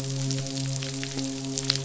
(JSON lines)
{"label": "biophony, midshipman", "recorder": "SoundTrap 500"}